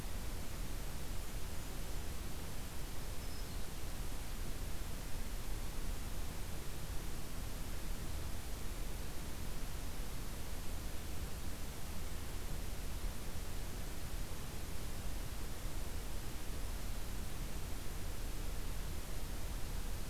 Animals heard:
forest ambience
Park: Acadia National Park